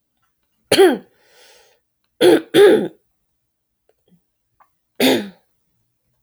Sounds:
Throat clearing